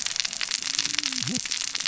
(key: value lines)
label: biophony, cascading saw
recorder: SoundTrap 600 or HydroMoth